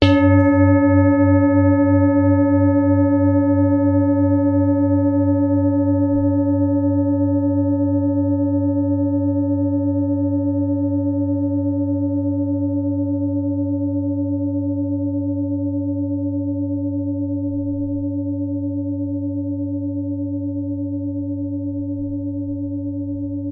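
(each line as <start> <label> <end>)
0.0 A Tibetan bowl is struck, producing a fading sound. 23.5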